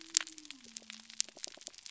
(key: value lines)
label: biophony
recorder: SoundTrap 300